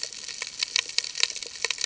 {"label": "ambient", "recorder": "HydroMoth"}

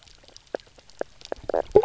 {"label": "biophony, knock croak", "recorder": "SoundTrap 300"}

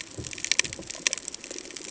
{"label": "ambient", "recorder": "HydroMoth"}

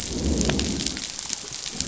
{"label": "biophony, growl", "recorder": "SoundTrap 500"}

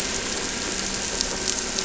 {"label": "anthrophony, boat engine", "recorder": "SoundTrap 300"}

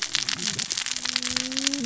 {"label": "biophony, cascading saw", "recorder": "SoundTrap 600 or HydroMoth"}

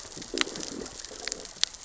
{"label": "biophony, growl", "recorder": "SoundTrap 600 or HydroMoth"}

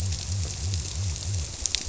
{"label": "biophony", "recorder": "SoundTrap 300"}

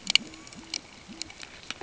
{"label": "ambient", "recorder": "HydroMoth"}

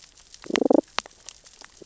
{"label": "biophony, damselfish", "recorder": "SoundTrap 600 or HydroMoth"}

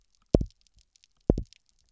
{"label": "biophony, double pulse", "recorder": "SoundTrap 300"}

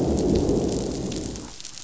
{"label": "biophony, growl", "recorder": "SoundTrap 500"}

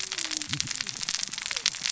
{"label": "biophony, cascading saw", "recorder": "SoundTrap 600 or HydroMoth"}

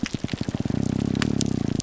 {"label": "biophony, grouper groan", "recorder": "SoundTrap 300"}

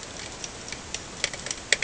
{"label": "ambient", "recorder": "HydroMoth"}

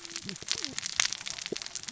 {"label": "biophony, cascading saw", "recorder": "SoundTrap 600 or HydroMoth"}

